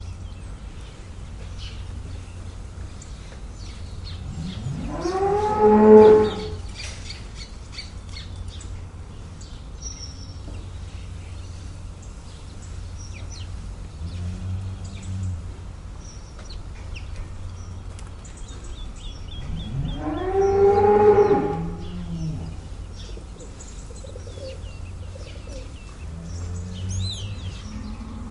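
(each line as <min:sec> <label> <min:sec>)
0:00.0 A bird is singing. 0:04.8
0:05.0 Cows moo. 0:06.5
0:06.6 A bird is singing. 0:19.0
0:13.7 An engine is running. 0:16.2
0:19.6 A cow is mooing. 0:22.1
0:22.4 Birds chirping. 0:25.5
0:25.7 Cows moo. 0:28.3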